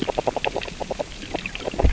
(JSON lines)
{"label": "biophony, grazing", "recorder": "SoundTrap 600 or HydroMoth"}